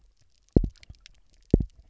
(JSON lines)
{"label": "biophony, double pulse", "recorder": "SoundTrap 300"}